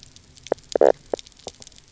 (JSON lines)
{"label": "biophony, knock croak", "recorder": "SoundTrap 300"}